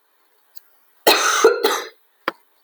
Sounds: Cough